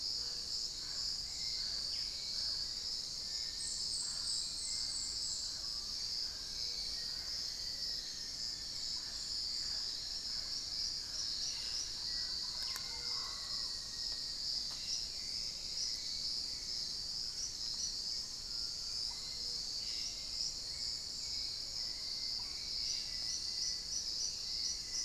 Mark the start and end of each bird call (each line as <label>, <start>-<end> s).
Mealy Parrot (Amazona farinosa), 0.0-14.9 s
Hauxwell's Thrush (Turdus hauxwelli), 0.0-25.0 s
Musician Wren (Cyphorhinus arada), 2.9-8.0 s
Long-winged Antwren (Myrmotherula longipennis), 6.4-9.9 s
Thrush-like Wren (Campylorhynchus turdinus), 6.6-9.0 s
Black-faced Antthrush (Formicarius analis), 11.7-14.4 s
Cobalt-winged Parakeet (Brotogeris cyanoptera), 14.5-15.2 s
unidentified bird, 16.7-18.3 s
Musician Wren (Cyphorhinus arada), 17.5-24.2 s
Cobalt-winged Parakeet (Brotogeris cyanoptera), 19.6-20.2 s
unidentified bird, 22.2-22.6 s